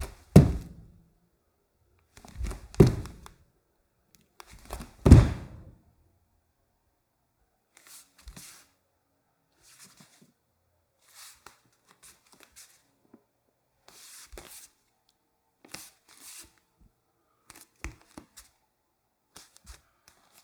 Is more than one object being used?
yes